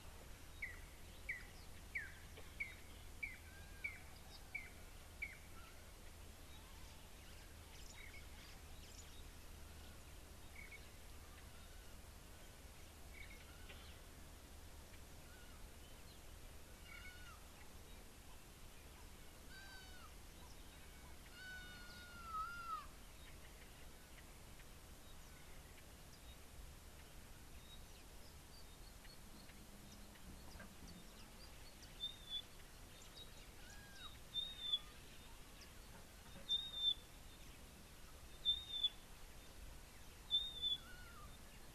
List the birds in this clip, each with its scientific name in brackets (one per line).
Pygmy Batis (Batis perkeo)
Red-and-yellow Barbet (Trachyphonus erythrocephalus)
Red-backed Scrub-Robin (Cercotrichas leucophrys)